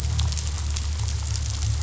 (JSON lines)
{"label": "anthrophony, boat engine", "recorder": "SoundTrap 500"}